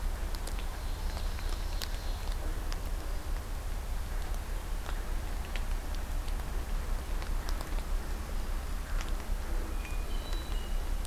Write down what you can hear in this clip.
Ovenbird, Hermit Thrush